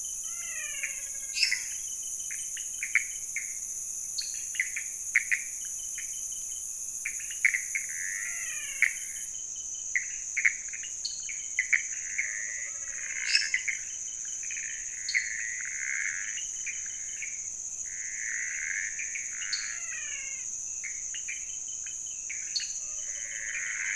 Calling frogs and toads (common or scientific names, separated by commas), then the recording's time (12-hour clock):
Pithecopus azureus, menwig frog, lesser tree frog, pointedbelly frog, dwarf tree frog
1:15am